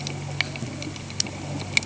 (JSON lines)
{"label": "anthrophony, boat engine", "recorder": "HydroMoth"}